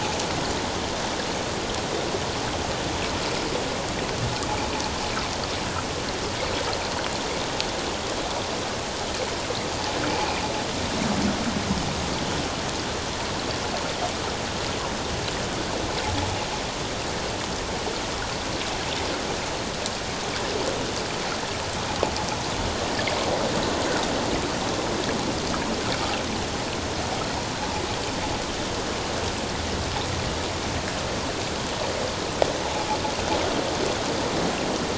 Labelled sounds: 32.6	32.9	invertebrate grinding on or near the hydrophone, 0.78 to 0.91 kHz

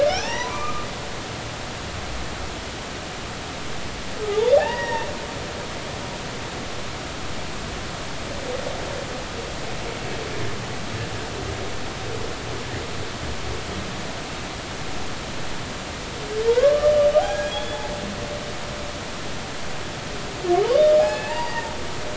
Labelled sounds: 0.1	0.9	humpback whale, 0.80 to 6.0 kHz
4.3	5.1	humpback whale, 0.80 to 2.0 kHz
16.5	17.8	humpback whale, 0.80 to 7.4 kHz
21.0	21.7	humpback whale, 0.80 to 6.9 kHz

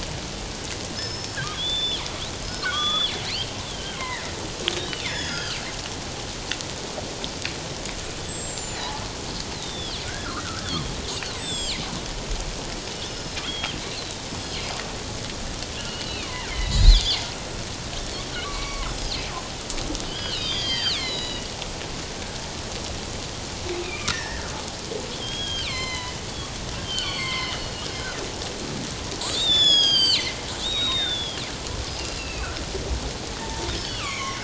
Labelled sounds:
0.9	2.0	killer whale, northern resident, G clan, 2.9 to 5.4 kHz
2.4	3.1	killer whale, northern resident, G clan, 1.1 to 5.3 kHz
3.6	5.6	killer whale, northern resident, G clan, 1.2 to 7.2 kHz
8.0	8.8	killer whale, northern resident, G clan, 7.0 to 8.0 kHz
9.5	11.8	killer whale, northern resident, G clan, 1.2 to 8.0 kHz
13.1	14.6	killer whale, northern resident, G clan, 2.0 to 5.3 kHz
15.8	17.2	killer whale, northern resident, G clan, 0.88 to 5.2 kHz
18.4	19.1	killer whale, northern resident, G clan, 0.94 to 7.9 kHz
20.1	21.5	killer whale, northern resident, G clan, 1.3 to 7.1 kHz
23.8	24.5	killer whale, northern resident, G clan, 1.1 to 2.7 kHz
25.1	26.2	killer whale, northern resident, G clan, 0.81 to 7.6 kHz
26.8	28.2	killer whale, northern resident, G clan, 0.97 to 5.2 kHz
29.3	31.4	killer whale, northern resident, G clan, 1.5 to 8.0 kHz
32.1	32.5	killer whale, northern resident, G clan, 2.4 to 4.2 kHz
33.4	34.4	killer whale, northern resident, G clan, 0.84 to 3.2 kHz

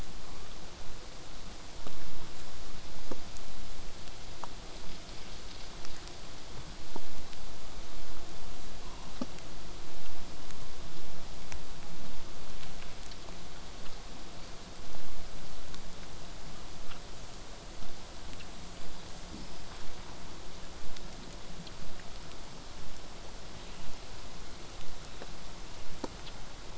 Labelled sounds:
1.8	6.8	vessel noise, 0 to 8.0 kHz
8.9	9.1	killer whale, southern resident, 0.74 to 2.9 kHz
24.0	25.3	killer whale, southern resident, 1.9 to 5.2 kHz

